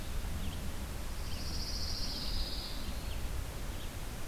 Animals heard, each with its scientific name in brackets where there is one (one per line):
Red-eyed Vireo (Vireo olivaceus)
Pine Warbler (Setophaga pinus)